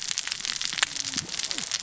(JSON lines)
{"label": "biophony, cascading saw", "recorder": "SoundTrap 600 or HydroMoth"}